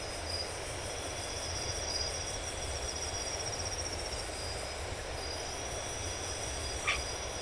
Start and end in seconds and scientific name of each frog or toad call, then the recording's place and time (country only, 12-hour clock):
6.8	7.1	Boana albomarginata
Brazil, 11:30pm